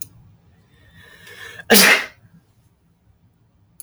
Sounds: Sneeze